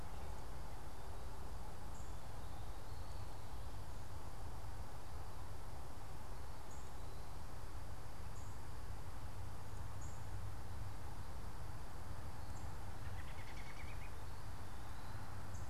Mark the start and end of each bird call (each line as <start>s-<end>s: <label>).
6.6s-10.3s: unidentified bird
12.7s-14.1s: American Robin (Turdus migratorius)